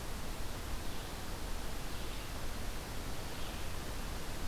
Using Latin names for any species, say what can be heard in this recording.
forest ambience